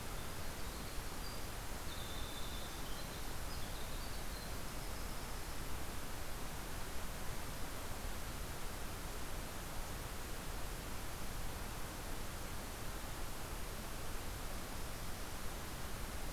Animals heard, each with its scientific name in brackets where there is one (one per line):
Winter Wren (Troglodytes hiemalis)